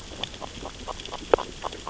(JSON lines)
{"label": "biophony, grazing", "recorder": "SoundTrap 600 or HydroMoth"}